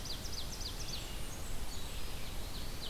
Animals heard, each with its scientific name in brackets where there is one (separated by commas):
Red-eyed Vireo (Vireo olivaceus), Ovenbird (Seiurus aurocapilla), Blackburnian Warbler (Setophaga fusca)